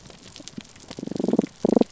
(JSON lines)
{"label": "biophony, damselfish", "recorder": "SoundTrap 300"}